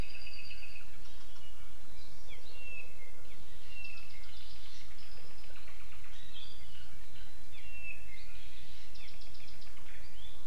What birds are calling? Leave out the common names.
Himatione sanguinea